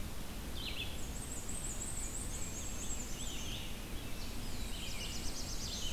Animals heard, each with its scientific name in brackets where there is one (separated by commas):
Black-and-white Warbler (Mniotilta varia), Black-throated Blue Warbler (Setophaga caerulescens), Red-eyed Vireo (Vireo olivaceus)